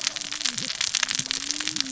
{"label": "biophony, cascading saw", "recorder": "SoundTrap 600 or HydroMoth"}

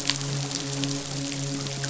{"label": "biophony, midshipman", "recorder": "SoundTrap 500"}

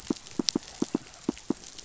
{"label": "biophony, pulse", "recorder": "SoundTrap 500"}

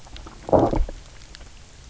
{"label": "biophony, low growl", "recorder": "SoundTrap 300"}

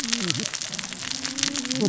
{"label": "biophony, cascading saw", "recorder": "SoundTrap 600 or HydroMoth"}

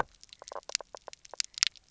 {"label": "biophony, knock croak", "recorder": "SoundTrap 300"}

